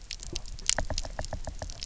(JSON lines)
{"label": "biophony, knock", "recorder": "SoundTrap 300"}